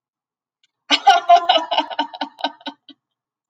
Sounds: Laughter